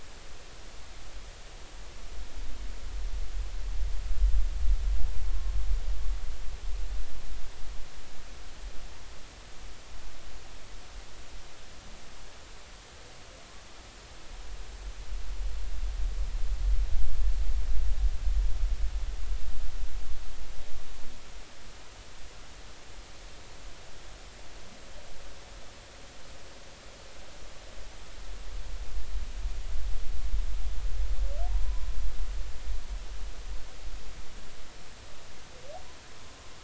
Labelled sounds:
5.2	5.5	humpback whale, 1.0 to 1.1 kHz
31.5	31.9	humpback whale, 0.86 to 1.1 kHz

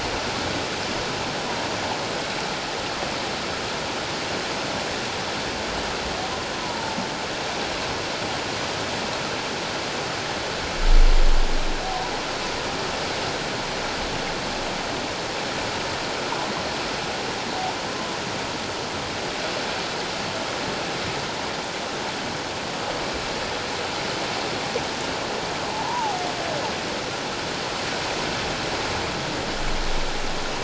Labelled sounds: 6.6	7.0	humpback whale, 0.84 to 1.0 kHz
25.7	26.2	humpback whale, 0.78 to 1.1 kHz

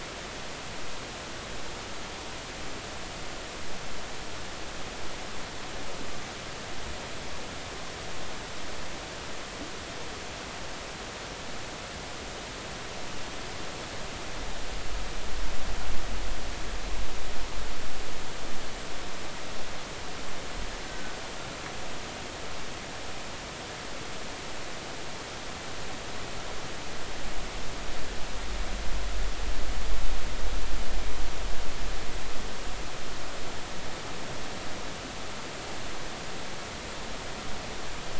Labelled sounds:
20.8	21.2	killer whale, Bigg's (transient), 1.5 to 1.6 kHz

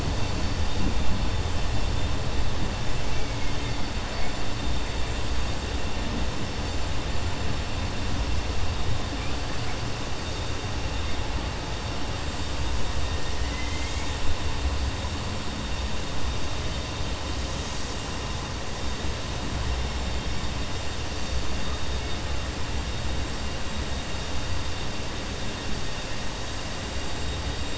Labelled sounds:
3.1	3.8	killer whale, 1.7 to 3.1 kHz
13.4	14.1	killer whale, 1.8 to 4.2 kHz

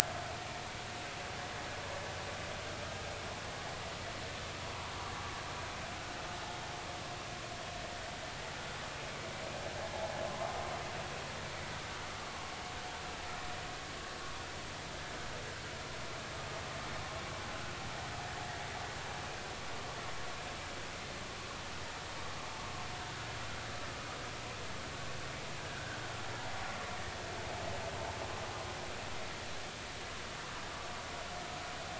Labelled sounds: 12.2	12.5	vessel noise, 1.1 to 1.2 kHz

